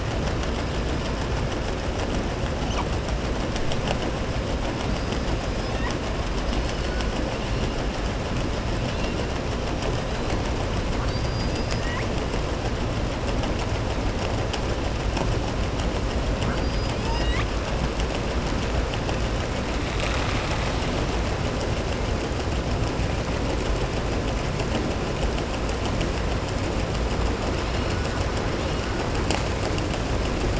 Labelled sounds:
16.4	17.0	killer whale, southern resident, 4.6 to 5.0 kHz

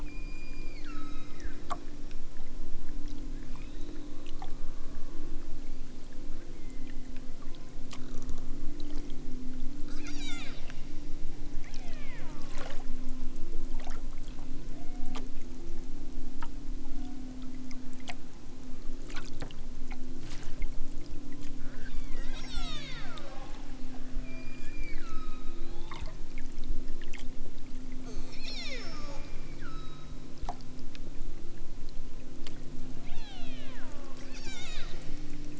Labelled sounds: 0.0	1.7	killer whale, southern Alaska resident, 0.92 to 7.7 kHz
3.4	3.9	killer whale, southern Alaska resident, 0.55 to 3.0 kHz
6.5	7.7	killer whale, southern Alaska resident, 0.97 to 4.7 kHz
9.8	10.7	killer whale, southern Alaska resident, 0.60 to 8.0 kHz
11.6	12.4	killer whale, southern Alaska resident, 0.55 to 3.9 kHz
14.7	15.2	killer whale, southern Alaska resident, 0.60 to 2.5 kHz
16.8	17.3	killer whale, southern Alaska resident, 0.64 to 2.3 kHz
21.7	23.5	killer whale, southern Alaska resident, 0.69 to 8.0 kHz
24.1	26.1	killer whale, southern Alaska resident, 0.87 to 5.2 kHz
28.4	29.2	killer whale, southern Alaska resident, 0.55 to 8.0 kHz
29.5	30.3	killer whale, southern Alaska resident, 0.92 to 6.1 kHz
32.9	35.1	killer whale, southern Alaska resident, 0.64 to 8.0 kHz

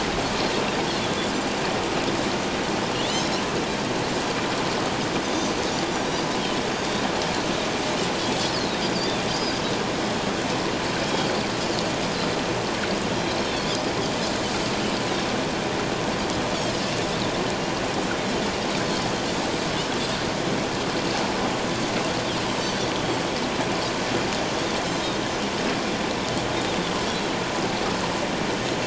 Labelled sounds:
5.7	6.0	Pacific white-sided dolphin, 4.5 to 7.2 kHz
6.8	7.0	Pacific white-sided dolphin, 3.5 to 3.8 kHz
9.3	9.6	Pacific white-sided dolphin, 4.6 to 5.1 kHz
11.1	11.3	Pacific white-sided dolphin, 3.2 to 3.3 kHz

